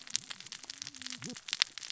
{"label": "biophony, cascading saw", "recorder": "SoundTrap 600 or HydroMoth"}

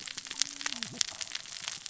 {"label": "biophony, cascading saw", "recorder": "SoundTrap 600 or HydroMoth"}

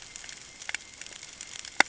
{"label": "ambient", "recorder": "HydroMoth"}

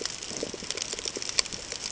{"label": "ambient", "recorder": "HydroMoth"}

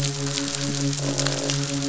{"label": "biophony, croak", "recorder": "SoundTrap 500"}
{"label": "biophony, midshipman", "recorder": "SoundTrap 500"}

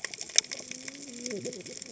{"label": "biophony, cascading saw", "recorder": "HydroMoth"}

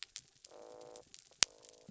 {"label": "biophony", "recorder": "SoundTrap 300"}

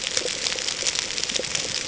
{"label": "ambient", "recorder": "HydroMoth"}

